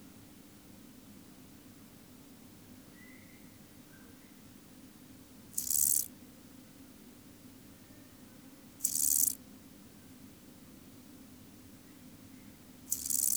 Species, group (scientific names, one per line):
Chorthippus albomarginatus
Orthoptera